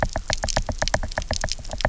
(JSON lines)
{"label": "biophony, knock", "recorder": "SoundTrap 300"}